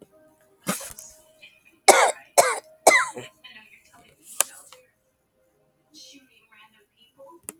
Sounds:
Cough